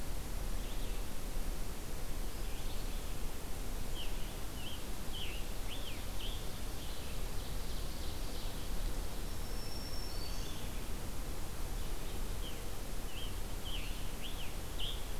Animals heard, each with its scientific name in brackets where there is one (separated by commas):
Scarlet Tanager (Piranga olivacea), Red-eyed Vireo (Vireo olivaceus), Ovenbird (Seiurus aurocapilla), Black-throated Green Warbler (Setophaga virens)